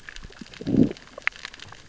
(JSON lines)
{"label": "biophony, growl", "recorder": "SoundTrap 600 or HydroMoth"}